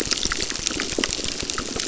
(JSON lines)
{"label": "biophony, crackle", "recorder": "SoundTrap 600"}